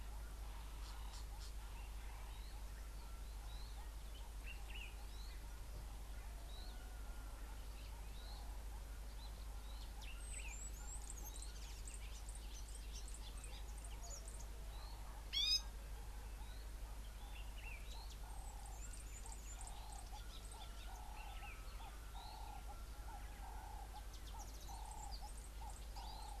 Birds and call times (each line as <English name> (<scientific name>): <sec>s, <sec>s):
Northern Puffback (Dryoscopus gambensis): 1.1s
Pale White-eye (Zosterops flavilateralis): 6.5s
Variable Sunbird (Cinnyris venustus): 11.4s
Gray-backed Camaroptera (Camaroptera brevicaudata): 15.4s
Common Bulbul (Pycnonotus barbatus): 17.6s
Ring-necked Dove (Streptopelia capicola): 23.4s